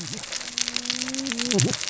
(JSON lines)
{"label": "biophony, cascading saw", "recorder": "SoundTrap 600 or HydroMoth"}